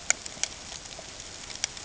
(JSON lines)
{"label": "ambient", "recorder": "HydroMoth"}